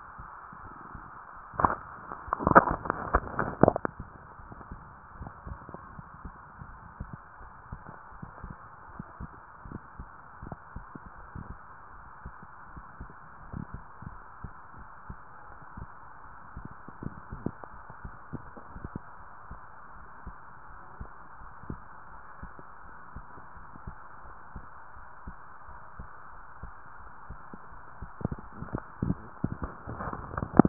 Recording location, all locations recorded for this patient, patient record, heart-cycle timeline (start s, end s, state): tricuspid valve (TV)
pulmonary valve (PV)+tricuspid valve (TV)
#Age: nan
#Sex: Female
#Height: nan
#Weight: nan
#Pregnancy status: True
#Murmur: Absent
#Murmur locations: nan
#Most audible location: nan
#Systolic murmur timing: nan
#Systolic murmur shape: nan
#Systolic murmur grading: nan
#Systolic murmur pitch: nan
#Systolic murmur quality: nan
#Diastolic murmur timing: nan
#Diastolic murmur shape: nan
#Diastolic murmur grading: nan
#Diastolic murmur pitch: nan
#Diastolic murmur quality: nan
#Outcome: Normal
#Campaign: 2015 screening campaign
0.00	5.16	unannotated
5.16	5.32	S1
5.32	5.50	systole
5.50	5.62	S2
5.62	5.94	diastole
5.94	6.06	S1
6.06	6.22	systole
6.22	6.36	S2
6.36	6.68	diastole
6.68	6.80	S1
6.80	6.94	systole
6.94	7.10	S2
7.10	7.40	diastole
7.40	7.52	S1
7.52	7.70	systole
7.70	7.84	S2
7.84	8.20	diastole
8.20	8.32	S1
8.32	8.42	systole
8.42	8.51	S2
8.51	8.94	diastole
8.94	9.06	S1
9.06	9.20	systole
9.20	9.30	S2
9.30	9.66	diastole
9.66	9.80	S1
9.80	9.96	systole
9.96	10.10	S2
10.10	10.42	diastole
10.42	10.58	S1
10.58	10.74	systole
10.74	10.86	S2
10.86	11.18	diastole
11.18	30.69	unannotated